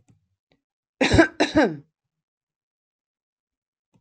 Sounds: Cough